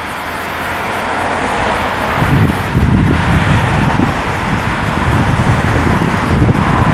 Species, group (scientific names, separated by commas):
Myopsalta mackinlayi, Cicadidae